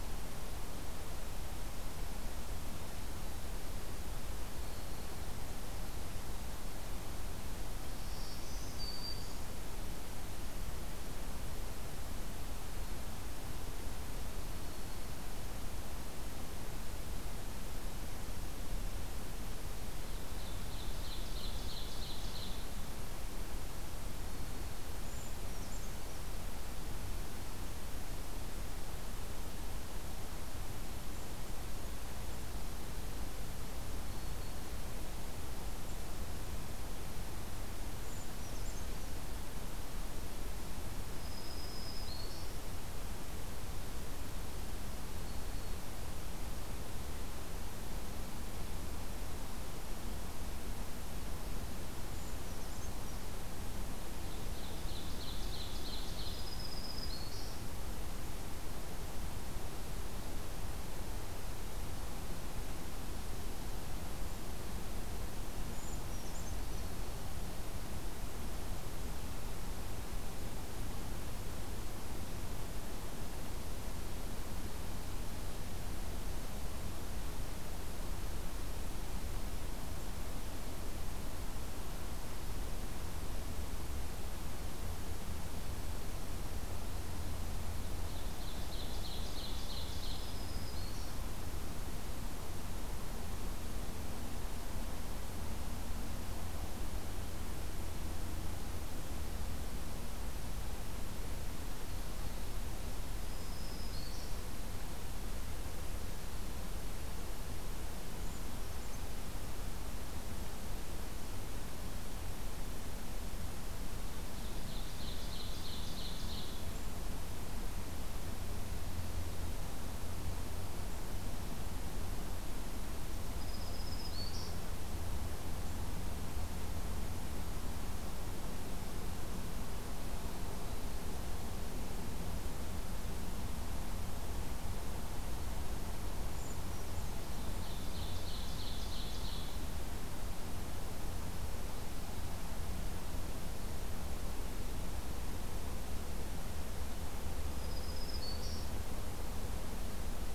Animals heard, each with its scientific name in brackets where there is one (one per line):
Black-throated Green Warbler (Setophaga virens)
Ovenbird (Seiurus aurocapilla)
Brown Creeper (Certhia americana)